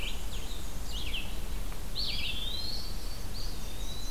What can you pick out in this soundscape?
Black-and-white Warbler, Red-eyed Vireo, Eastern Wood-Pewee, Hermit Thrush, Blackburnian Warbler